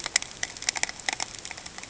{"label": "ambient", "recorder": "HydroMoth"}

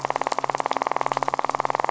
{"label": "biophony, midshipman", "recorder": "SoundTrap 500"}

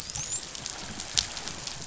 {"label": "biophony, dolphin", "recorder": "SoundTrap 500"}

